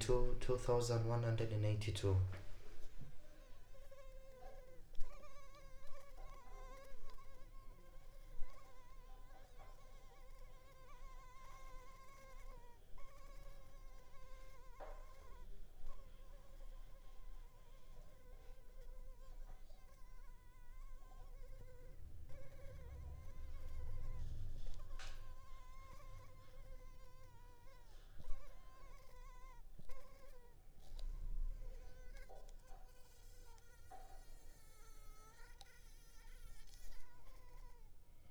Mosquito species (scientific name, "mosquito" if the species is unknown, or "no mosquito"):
Culex pipiens complex